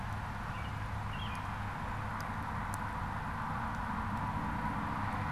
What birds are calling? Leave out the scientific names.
American Robin